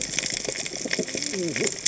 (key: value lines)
label: biophony, cascading saw
recorder: HydroMoth